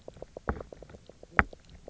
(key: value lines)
label: biophony, knock croak
recorder: SoundTrap 300